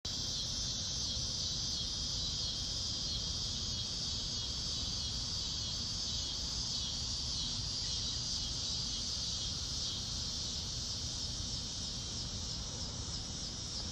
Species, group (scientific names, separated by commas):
Neotibicen pruinosus, Cicadidae